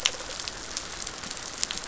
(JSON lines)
{"label": "biophony, rattle response", "recorder": "SoundTrap 500"}